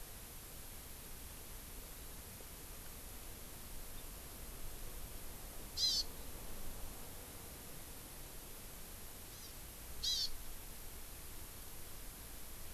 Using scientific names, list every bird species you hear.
Chlorodrepanis virens